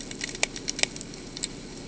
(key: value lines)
label: ambient
recorder: HydroMoth